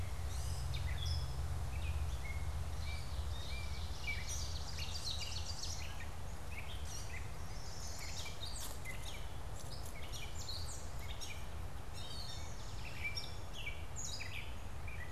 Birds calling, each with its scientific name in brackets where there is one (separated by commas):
Gray Catbird (Dumetella carolinensis), Ovenbird (Seiurus aurocapilla), Blue-winged Warbler (Vermivora cyanoptera), Eastern Towhee (Pipilo erythrophthalmus), Chestnut-sided Warbler (Setophaga pensylvanica)